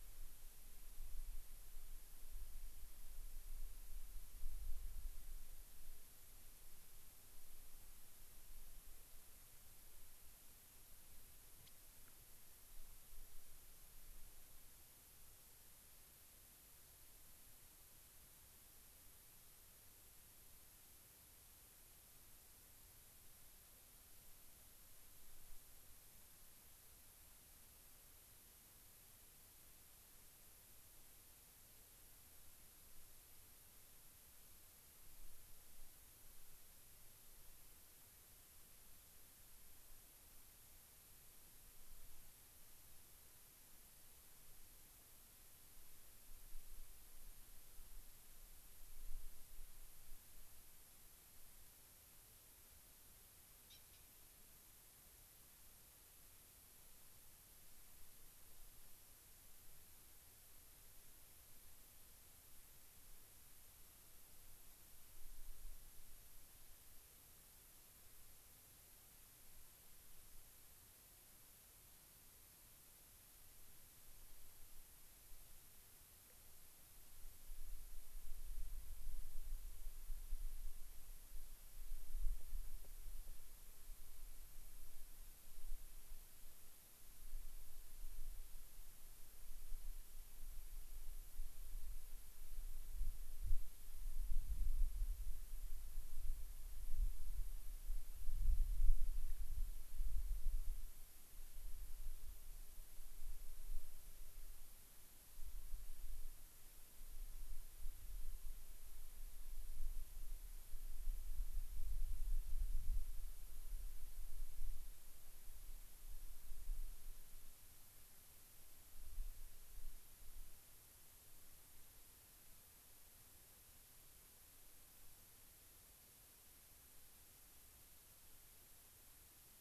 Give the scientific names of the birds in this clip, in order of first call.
Setophaga coronata